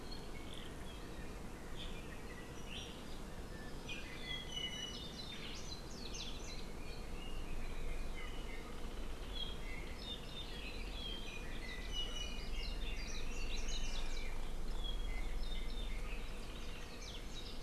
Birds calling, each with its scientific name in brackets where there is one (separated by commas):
Apapane (Himatione sanguinea), Red-billed Leiothrix (Leiothrix lutea)